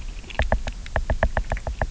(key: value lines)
label: biophony, knock
recorder: SoundTrap 300